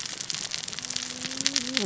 {"label": "biophony, cascading saw", "recorder": "SoundTrap 600 or HydroMoth"}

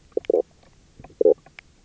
{"label": "biophony, knock croak", "recorder": "SoundTrap 300"}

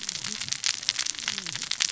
{"label": "biophony, cascading saw", "recorder": "SoundTrap 600 or HydroMoth"}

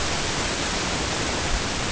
{"label": "ambient", "recorder": "HydroMoth"}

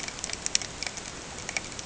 {"label": "ambient", "recorder": "HydroMoth"}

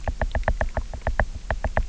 {"label": "biophony, knock", "recorder": "SoundTrap 300"}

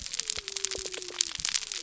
{"label": "biophony", "recorder": "SoundTrap 300"}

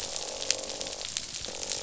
{"label": "biophony, croak", "recorder": "SoundTrap 500"}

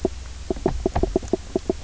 {"label": "biophony, knock croak", "recorder": "SoundTrap 300"}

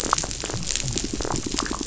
{"label": "biophony", "recorder": "SoundTrap 500"}
{"label": "biophony, damselfish", "recorder": "SoundTrap 500"}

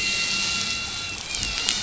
{"label": "anthrophony, boat engine", "recorder": "SoundTrap 500"}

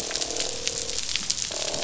{"label": "biophony, croak", "recorder": "SoundTrap 500"}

